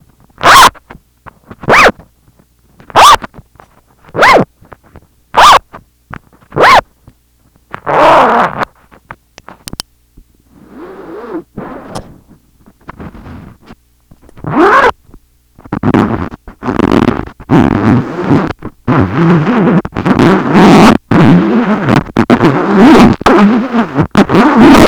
what happens to the zipper at the end?
stops